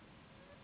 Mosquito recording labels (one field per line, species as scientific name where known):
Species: Anopheles gambiae s.s.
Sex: female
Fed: unfed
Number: one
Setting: insect culture